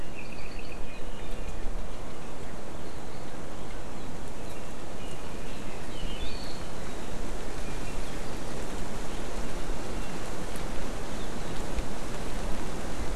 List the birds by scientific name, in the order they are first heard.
Himatione sanguinea, Drepanis coccinea